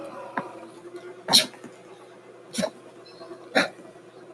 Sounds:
Sneeze